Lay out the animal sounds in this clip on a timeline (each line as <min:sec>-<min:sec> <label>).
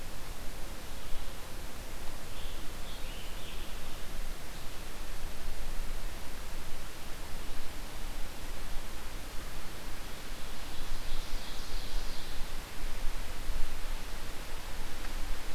0:02.2-0:04.1 Scarlet Tanager (Piranga olivacea)
0:10.5-0:12.3 Ovenbird (Seiurus aurocapilla)